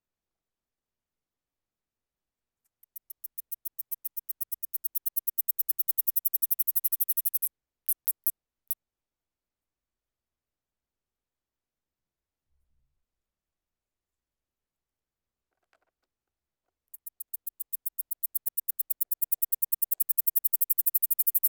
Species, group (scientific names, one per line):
Platystolus martinezii
Orthoptera